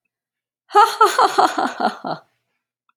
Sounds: Laughter